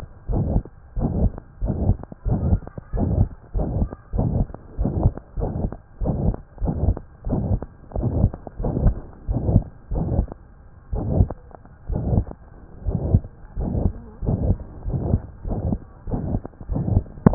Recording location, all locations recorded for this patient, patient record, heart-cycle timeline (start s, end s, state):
pulmonary valve (PV)
aortic valve (AV)+pulmonary valve (PV)+tricuspid valve (TV)+mitral valve (MV)
#Age: Child
#Sex: Male
#Height: 111.0 cm
#Weight: 19.4 kg
#Pregnancy status: False
#Murmur: Present
#Murmur locations: aortic valve (AV)+mitral valve (MV)+pulmonary valve (PV)+tricuspid valve (TV)
#Most audible location: aortic valve (AV)
#Systolic murmur timing: Holosystolic
#Systolic murmur shape: Plateau
#Systolic murmur grading: III/VI or higher
#Systolic murmur pitch: High
#Systolic murmur quality: Harsh
#Diastolic murmur timing: nan
#Diastolic murmur shape: nan
#Diastolic murmur grading: nan
#Diastolic murmur pitch: nan
#Diastolic murmur quality: nan
#Outcome: Abnormal
#Campaign: 2015 screening campaign
0.00	0.93	unannotated
0.93	1.08	S1
1.08	1.18	systole
1.18	1.32	S2
1.32	1.57	diastole
1.57	1.73	S1
1.73	1.82	systole
1.82	1.98	S2
1.98	2.21	diastole
2.21	2.34	S1
2.34	2.46	systole
2.46	2.60	S2
2.60	2.90	diastole
2.90	3.04	S1
3.04	3.14	systole
3.14	3.28	S2
3.28	3.49	diastole
3.49	3.65	S1
3.65	3.74	systole
3.74	3.88	S2
3.88	4.10	diastole
4.10	4.21	S1
4.21	4.36	systole
4.36	4.48	S2
4.48	4.74	diastole
4.74	4.89	S1
4.89	4.99	systole
4.99	5.15	S2
5.15	5.33	diastole
5.33	5.48	S1
5.48	5.59	systole
5.59	5.72	S2
5.72	5.97	diastole
5.97	6.11	S1
6.11	6.22	systole
6.22	6.34	S2
6.34	6.57	diastole
6.57	6.70	S1
6.70	6.82	systole
6.82	6.96	S2
6.96	7.22	diastole
7.22	7.35	S1
7.35	7.46	systole
7.46	7.60	S2
7.60	7.92	diastole
7.92	8.05	S1
8.05	8.20	systole
8.20	8.32	S2
8.32	8.56	diastole
8.56	8.72	S1
8.72	8.82	systole
8.82	8.98	S2
8.98	9.25	diastole
9.25	9.37	S1
9.37	9.51	systole
9.51	9.62	S2
9.62	9.87	diastole
9.87	10.00	S1
10.00	10.14	systole
10.14	10.26	S2
10.26	10.87	diastole
10.87	11.05	S1
11.05	11.17	systole
11.17	11.28	S2
11.28	11.84	diastole
11.84	12.02	S1
12.02	17.34	unannotated